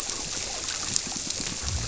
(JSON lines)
{"label": "biophony", "recorder": "SoundTrap 300"}